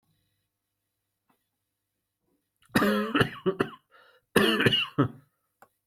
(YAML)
expert_labels:
- quality: good
  cough_type: dry
  dyspnea: false
  wheezing: false
  stridor: false
  choking: false
  congestion: false
  nothing: true
  diagnosis: lower respiratory tract infection
  severity: mild